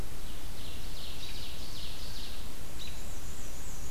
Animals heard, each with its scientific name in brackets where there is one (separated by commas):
Ovenbird (Seiurus aurocapilla), Black-and-white Warbler (Mniotilta varia), American Robin (Turdus migratorius)